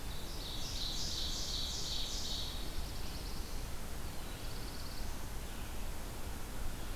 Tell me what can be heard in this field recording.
Ovenbird, Black-throated Blue Warbler